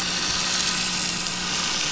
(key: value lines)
label: anthrophony, boat engine
recorder: SoundTrap 500